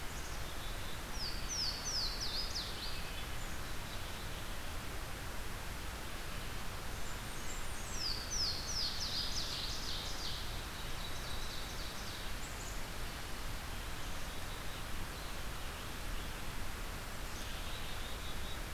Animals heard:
Black-capped Chickadee (Poecile atricapillus)
Blackburnian Warbler (Setophaga fusca)
Hermit Thrush (Catharus guttatus)
Louisiana Waterthrush (Parkesia motacilla)
Ovenbird (Seiurus aurocapilla)

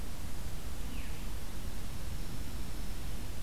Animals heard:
Dark-eyed Junco (Junco hyemalis)
Veery (Catharus fuscescens)

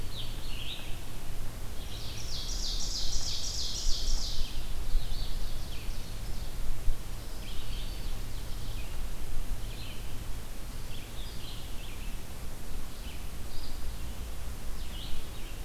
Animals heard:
Red-eyed Vireo (Vireo olivaceus)
Black-throated Green Warbler (Setophaga virens)
Scarlet Tanager (Piranga olivacea)
Ovenbird (Seiurus aurocapilla)

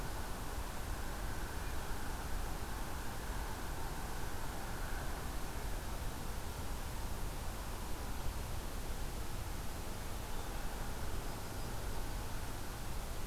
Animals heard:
Yellow-rumped Warbler (Setophaga coronata)

